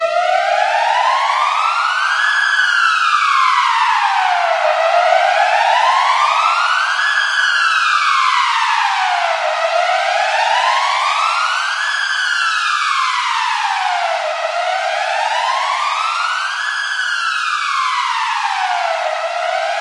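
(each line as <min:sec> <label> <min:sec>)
0:00.1 An emergency service siren sounds. 0:19.8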